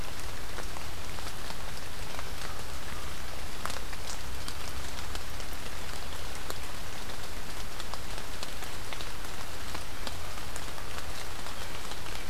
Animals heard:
forest ambience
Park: Marsh-Billings-Rockefeller National Historical Park